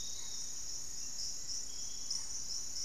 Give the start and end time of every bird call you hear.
0.0s-2.8s: Piratic Flycatcher (Legatus leucophaius)
0.1s-2.8s: Barred Forest-Falcon (Micrastur ruficollis)
2.0s-2.8s: Hauxwell's Thrush (Turdus hauxwelli)

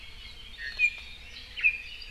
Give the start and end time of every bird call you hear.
0.5s-1.1s: Iiwi (Drepanis coccinea)

